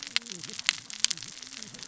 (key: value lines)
label: biophony, cascading saw
recorder: SoundTrap 600 or HydroMoth